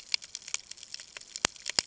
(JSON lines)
{"label": "ambient", "recorder": "HydroMoth"}